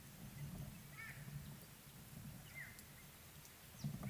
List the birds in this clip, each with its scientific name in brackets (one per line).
White-bellied Go-away-bird (Corythaixoides leucogaster)